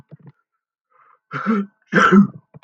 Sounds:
Sneeze